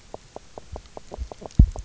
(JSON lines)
{"label": "biophony, knock croak", "recorder": "SoundTrap 300"}